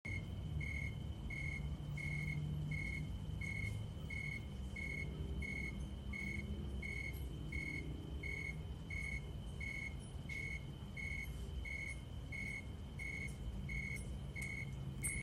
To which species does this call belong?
Oecanthus rileyi